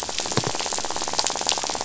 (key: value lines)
label: biophony, rattle
recorder: SoundTrap 500